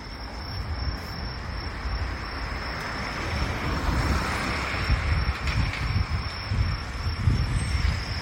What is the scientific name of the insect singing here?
Truljalia hibinonis